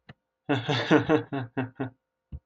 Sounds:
Laughter